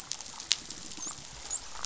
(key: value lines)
label: biophony, dolphin
recorder: SoundTrap 500